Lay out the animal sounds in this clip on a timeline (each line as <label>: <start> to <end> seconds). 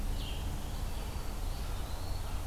Red-eyed Vireo (Vireo olivaceus): 0.0 to 0.5 seconds
Black-throated Green Warbler (Setophaga virens): 0.7 to 1.8 seconds
Eastern Wood-Pewee (Contopus virens): 1.3 to 2.5 seconds